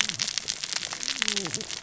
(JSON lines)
{"label": "biophony, cascading saw", "recorder": "SoundTrap 600 or HydroMoth"}